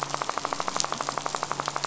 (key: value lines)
label: anthrophony, boat engine
recorder: SoundTrap 500